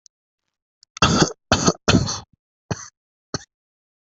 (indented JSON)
{
  "expert_labels": [
    {
      "quality": "ok",
      "cough_type": "unknown",
      "dyspnea": false,
      "wheezing": false,
      "stridor": false,
      "choking": false,
      "congestion": false,
      "nothing": true,
      "diagnosis": "COVID-19",
      "severity": "mild"
    }
  ],
  "age": 25,
  "gender": "female",
  "respiratory_condition": false,
  "fever_muscle_pain": false,
  "status": "COVID-19"
}